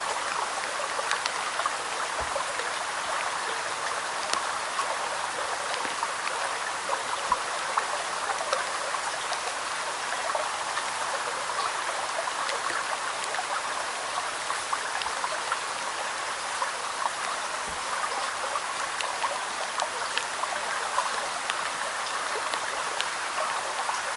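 Calm water flows continuously in a brook within a forest. 0:00.0 - 0:24.2
Soothing rain produces irregular clicking sounds in a forest. 0:00.0 - 0:24.2

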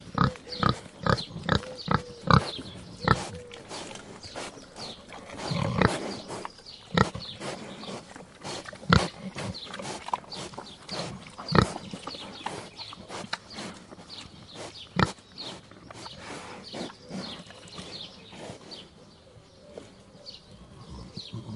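A pig grunts in a steady, throaty rhythm with snorting sounds. 0:00.0 - 0:04.1
Bird chirps are heard faintly in the background, adding a subtle natural ambience. 0:00.0 - 0:21.6
A pig sniffs repeatedly with short pauses between each breath, creating a steady nasal rhythm. 0:00.9 - 0:21.6
A pig grunts in a steady, throaty rhythm with snorting sounds. 0:05.4 - 0:07.3
A pig grunts in a steady, throaty rhythm with snorting sounds. 0:08.9 - 0:09.4
A pig grunts in a steady, throaty rhythm with snorting sounds. 0:11.4 - 0:11.8
A pig grunts in a steady, throaty rhythm with snorting sounds. 0:15.0 - 0:15.2

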